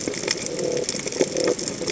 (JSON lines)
{"label": "biophony", "recorder": "HydroMoth"}